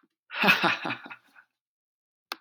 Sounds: Laughter